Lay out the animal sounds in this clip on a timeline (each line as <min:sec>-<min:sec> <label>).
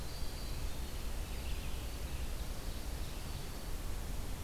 0:00.0-0:02.0 Red-eyed Vireo (Vireo olivaceus)
0:00.0-0:03.7 Winter Wren (Troglodytes hiemalis)
0:01.5-0:03.7 Ovenbird (Seiurus aurocapilla)